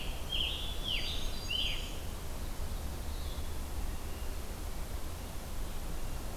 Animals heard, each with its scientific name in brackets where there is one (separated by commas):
Black-throated Green Warbler (Setophaga virens), Scarlet Tanager (Piranga olivacea)